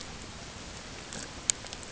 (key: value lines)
label: ambient
recorder: HydroMoth